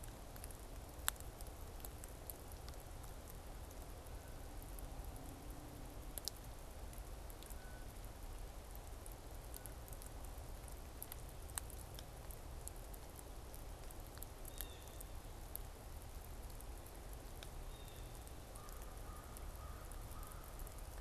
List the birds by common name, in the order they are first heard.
Blue Jay, American Crow